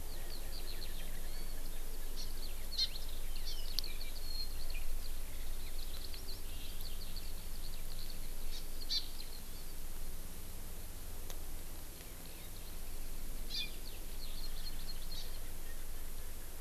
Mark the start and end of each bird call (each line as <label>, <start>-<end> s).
Eurasian Skylark (Alauda arvensis), 0.0-9.7 s
Hawaii Amakihi (Chlorodrepanis virens), 2.1-2.3 s
Hawaii Amakihi (Chlorodrepanis virens), 2.7-2.9 s
Hawaii Amakihi (Chlorodrepanis virens), 3.4-3.5 s
Hawaii Amakihi (Chlorodrepanis virens), 8.5-8.6 s
Hawaii Amakihi (Chlorodrepanis virens), 8.9-9.0 s
Hawaii Amakihi (Chlorodrepanis virens), 13.5-13.7 s
Hawaii Amakihi (Chlorodrepanis virens), 14.2-15.4 s